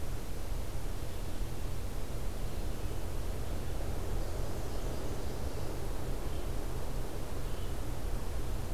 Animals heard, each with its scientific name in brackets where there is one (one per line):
Nashville Warbler (Leiothlypis ruficapilla)